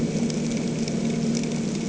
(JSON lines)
{"label": "anthrophony, boat engine", "recorder": "HydroMoth"}